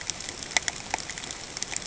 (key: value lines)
label: ambient
recorder: HydroMoth